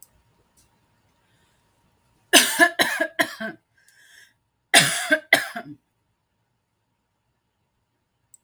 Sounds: Cough